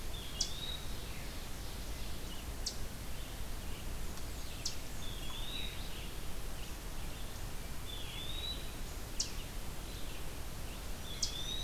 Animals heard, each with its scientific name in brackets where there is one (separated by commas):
Black-throated Green Warbler (Setophaga virens), Ovenbird (Seiurus aurocapilla), Eastern Wood-Pewee (Contopus virens), Eastern Chipmunk (Tamias striatus), Red-eyed Vireo (Vireo olivaceus)